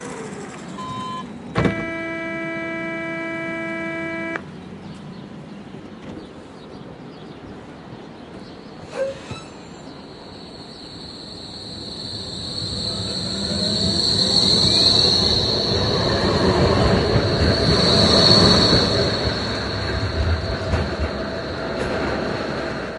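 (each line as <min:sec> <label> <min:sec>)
0:00.0 A sound gradually decreases in volume and intensity. 0:01.5
0:00.0 Birds singing melodically. 0:23.0
0:00.7 An alert beep signals the closing of train doors. 0:01.4
0:01.5 A train horn sounds long and continuous. 0:04.4
0:08.9 A train departs the station, preceded by a short horn. 0:23.0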